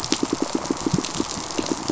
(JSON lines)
{"label": "biophony, pulse", "recorder": "SoundTrap 500"}